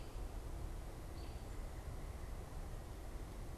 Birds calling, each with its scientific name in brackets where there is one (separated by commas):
American Robin (Turdus migratorius)